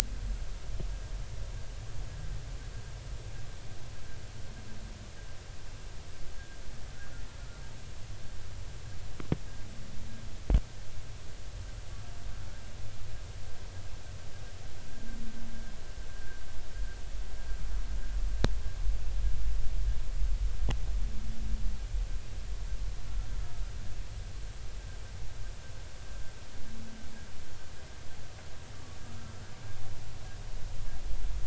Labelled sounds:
16.1	16.4	humpback whale, 1.5 to 1.7 kHz
29.0	29.4	humpback whale, 1.2 to 1.4 kHz

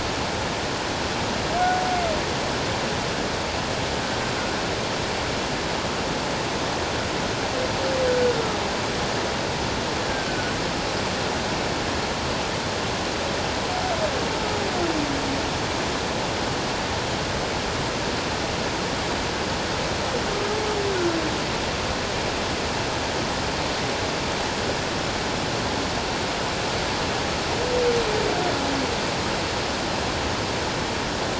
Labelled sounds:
10.1	10.5	humpback whale, 1.4 to 1.7 kHz

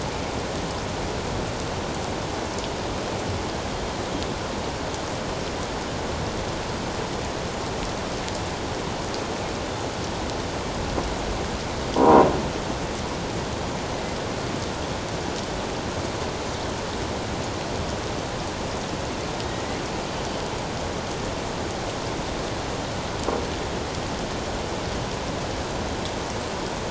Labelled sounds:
12.0	12.3	croaking sound likely from a nearby submerged object, 0.91 to 1.1 kHz

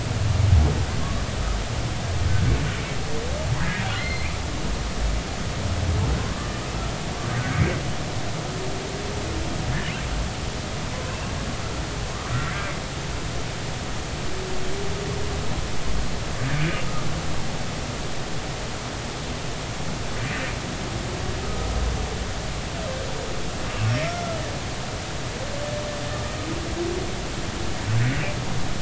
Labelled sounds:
4.0	4.3	humpback whale, 1.9 to 4.3 kHz
24.0	24.4	humpback whale, 1.3 to 1.4 kHz

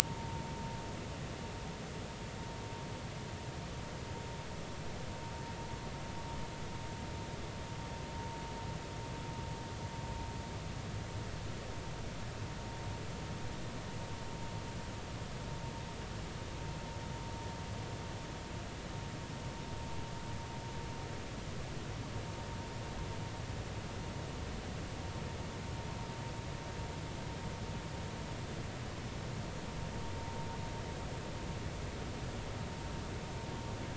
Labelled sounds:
0.1	0.3	vessel noise, 0.86 to 1.1 kHz

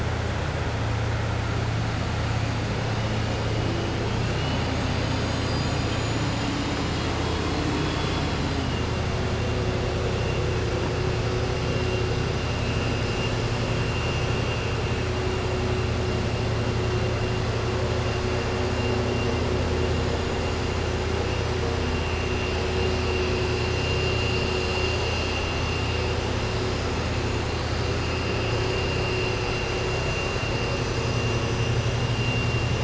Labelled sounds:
4.2	4.7	vessel noise, 2.4 to 4.2 kHz
7.2	8.3	vessel noise, 2.4 to 5.3 kHz

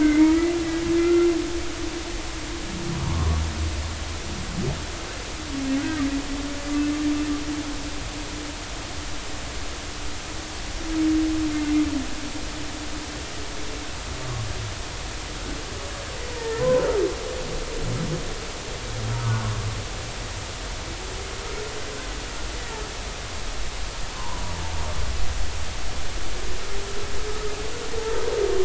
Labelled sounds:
0.0	0.5	humpback whale, 2.0 to 2.4 kHz
1.0	1.3	humpback whale, 1.3 to 2.1 kHz
3.0	3.4	humpback whale, 0.86 to 1.2 kHz
11.5	11.8	humpback whale, 2.0 to 2.2 kHz
16.3	16.9	humpback whale, 0.86 to 1.9 kHz
24.1	24.5	humpback whale, 0.83 to 1.1 kHz

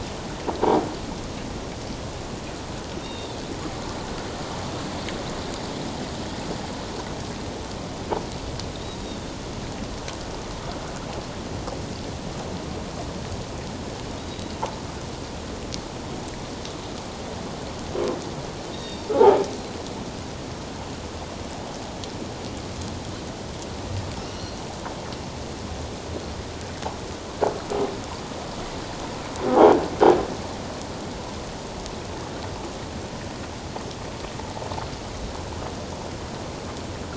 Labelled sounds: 3.0	3.4	Pacific white-sided dolphin, 2.7 to 3.8 kHz
9.0	9.3	Pacific white-sided dolphin, 3.5 to 3.8 kHz
14.1	14.5	Pacific white-sided dolphin, 3.7 to 3.9 kHz
18.7	19.1	Pacific white-sided dolphin, 3.6 to 3.8 kHz
19.1	19.4	croaking sound likely from a nearby submerged object, 0.78 to 1.0 kHz
24.2	24.6	Pacific white-sided dolphin, 2.6 to 4.3 kHz
29.5	29.7	croaking sound likely from a nearby submerged object, 0.78 to 1.0 kHz

